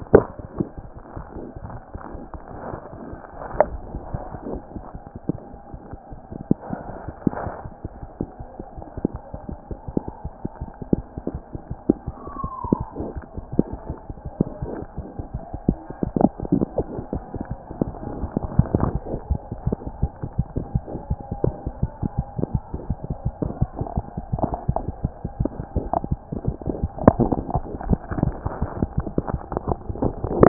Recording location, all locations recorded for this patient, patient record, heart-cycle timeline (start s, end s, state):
aortic valve (AV)
aortic valve (AV)+mitral valve (MV)
#Age: Infant
#Sex: Female
#Height: nan
#Weight: 3.6 kg
#Pregnancy status: False
#Murmur: Absent
#Murmur locations: nan
#Most audible location: nan
#Systolic murmur timing: nan
#Systolic murmur shape: nan
#Systolic murmur grading: nan
#Systolic murmur pitch: nan
#Systolic murmur quality: nan
#Diastolic murmur timing: nan
#Diastolic murmur shape: nan
#Diastolic murmur grading: nan
#Diastolic murmur pitch: nan
#Diastolic murmur quality: nan
#Outcome: Abnormal
#Campaign: 2014 screening campaign
0.00	7.68	unannotated
7.68	7.83	diastole
7.83	7.87	S1
7.87	7.93	systole
7.93	8.02	S2
8.02	8.20	diastole
8.20	8.25	S1
8.25	8.40	systole
8.40	8.45	S2
8.45	8.59	diastole
8.59	8.64	S1
8.64	8.79	systole
8.79	8.90	S2
8.90	8.98	diastole
8.98	9.05	S1
9.05	9.13	systole
9.13	9.22	S2
9.22	9.33	diastole
9.33	9.42	S1
9.42	9.50	systole
9.50	9.63	S2
9.63	9.71	diastole
9.71	9.75	S1
9.75	30.48	unannotated